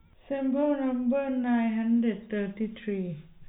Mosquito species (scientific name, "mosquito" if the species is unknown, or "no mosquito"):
no mosquito